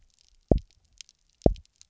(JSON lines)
{"label": "biophony, double pulse", "recorder": "SoundTrap 300"}